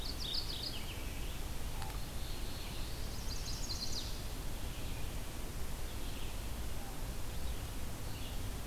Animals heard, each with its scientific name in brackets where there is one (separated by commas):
Chestnut-sided Warbler (Setophaga pensylvanica), Red-eyed Vireo (Vireo olivaceus), Black-throated Blue Warbler (Setophaga caerulescens), Mourning Warbler (Geothlypis philadelphia)